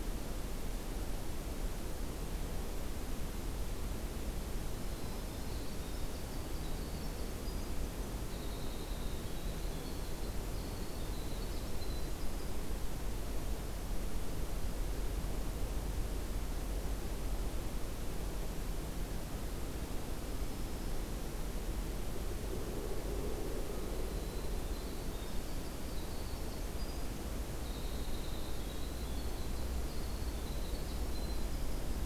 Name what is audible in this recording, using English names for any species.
Winter Wren, Black-throated Green Warbler